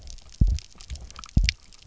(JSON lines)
{"label": "biophony, double pulse", "recorder": "SoundTrap 300"}